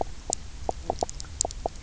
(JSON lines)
{"label": "biophony, knock croak", "recorder": "SoundTrap 300"}